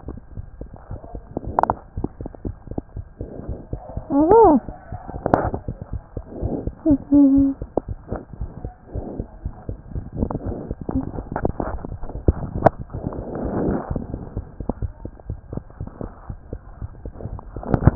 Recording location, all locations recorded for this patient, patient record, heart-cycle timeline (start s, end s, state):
mitral valve (MV)
aortic valve (AV)+pulmonary valve (PV)+tricuspid valve (TV)+mitral valve (MV)
#Age: Child
#Sex: Male
#Height: 99.0 cm
#Weight: 15.1 kg
#Pregnancy status: False
#Murmur: Absent
#Murmur locations: nan
#Most audible location: nan
#Systolic murmur timing: nan
#Systolic murmur shape: nan
#Systolic murmur grading: nan
#Systolic murmur pitch: nan
#Systolic murmur quality: nan
#Diastolic murmur timing: nan
#Diastolic murmur shape: nan
#Diastolic murmur grading: nan
#Diastolic murmur pitch: nan
#Diastolic murmur quality: nan
#Outcome: Normal
#Campaign: 2015 screening campaign
0.00	7.86	unannotated
7.86	7.96	S1
7.96	8.09	systole
8.09	8.20	S2
8.20	8.40	diastole
8.40	8.52	S1
8.52	8.60	systole
8.60	8.72	S2
8.72	8.92	diastole
8.92	9.04	S1
9.04	9.16	systole
9.16	9.26	S2
9.26	9.44	diastole
9.44	9.56	S1
9.56	9.66	systole
9.66	9.78	S2
9.78	9.94	diastole
9.94	10.06	S1
10.06	10.16	systole
10.16	10.28	S2
10.28	10.44	diastole
10.44	10.58	S1
10.58	10.66	systole
10.66	10.76	S2
10.76	14.34	unannotated
14.34	14.43	S1
14.43	14.58	systole
14.58	14.66	S2
14.66	14.80	diastole
14.80	14.94	S1
14.94	15.02	systole
15.02	15.12	S2
15.12	15.27	diastole
15.27	15.40	S1
15.40	15.52	systole
15.52	15.64	S2
15.64	15.79	diastole
15.79	15.89	S1
15.89	16.02	systole
16.02	16.12	S2
16.12	16.28	diastole
16.28	16.36	S1
16.36	16.50	systole
16.50	16.59	S2
16.59	16.80	diastole
16.80	16.92	S1
16.92	17.02	systole
17.02	17.14	S2
17.14	17.95	unannotated